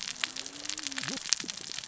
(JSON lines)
{"label": "biophony, cascading saw", "recorder": "SoundTrap 600 or HydroMoth"}